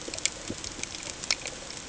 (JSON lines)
{"label": "ambient", "recorder": "HydroMoth"}